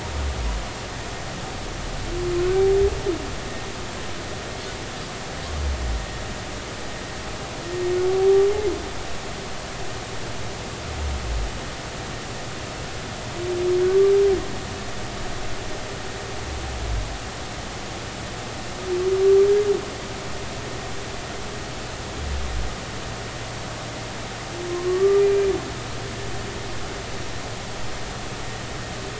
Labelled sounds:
24.7	25.5	humpback whale, 0.93 to 2.4 kHz

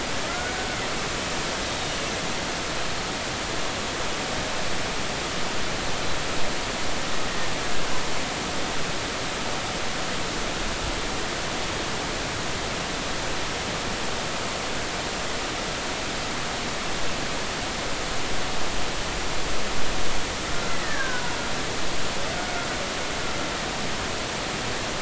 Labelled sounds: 0.2	0.6	killer whale, Bigg's (transient), 1.2 to 1.5 kHz
20.5	21.3	killer whale, Bigg's (transient), 0.90 to 2.0 kHz

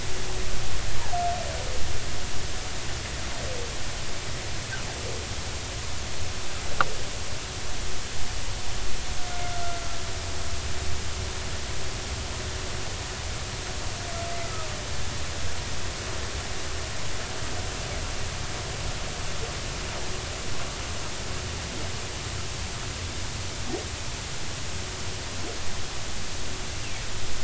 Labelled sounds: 9.5	10.0	humpback whale, 1.3 to 1.4 kHz

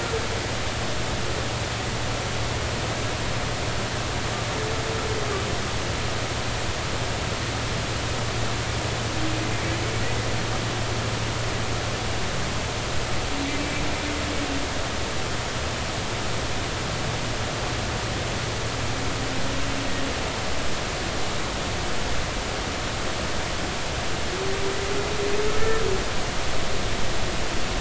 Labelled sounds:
13.6	13.8	humpback whale, 2.2 to 2.4 kHz

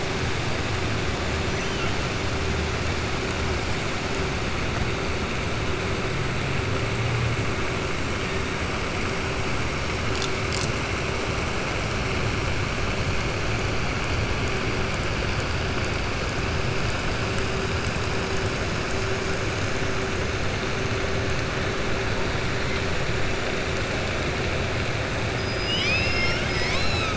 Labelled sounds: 25.4	27.1	killer whale, southern resident, 1.1 to 7.8 kHz

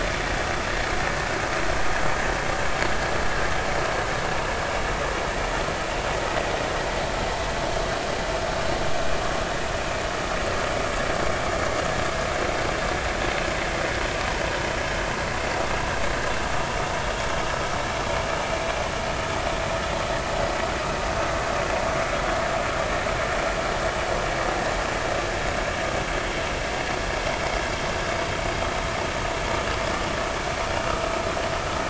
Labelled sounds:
30.8	31.1	vessel noise, 1.2 to 1.4 kHz

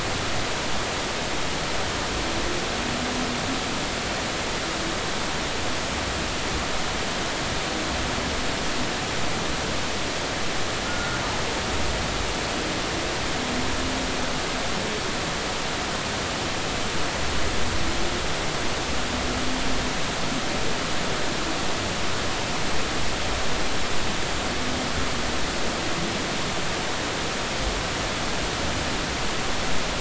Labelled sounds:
10.8	11.2	humpback whale, 1.2 to 1.5 kHz

